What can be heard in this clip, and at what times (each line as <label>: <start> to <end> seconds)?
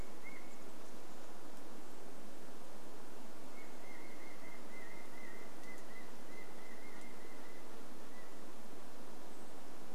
unidentified sound: 0 to 10 seconds